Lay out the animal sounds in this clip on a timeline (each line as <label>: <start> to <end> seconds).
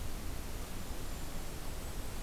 Golden-crowned Kinglet (Regulus satrapa): 0.0 to 2.2 seconds